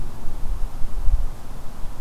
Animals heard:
forest ambience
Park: Acadia National Park